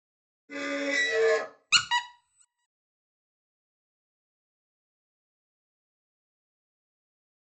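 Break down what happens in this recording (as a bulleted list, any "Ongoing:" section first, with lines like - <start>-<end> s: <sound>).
- 0.48-1.46 s: squeaking is heard
- 1.7-2.0 s: you can hear squeaking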